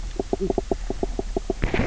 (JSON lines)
{"label": "biophony, knock croak", "recorder": "SoundTrap 300"}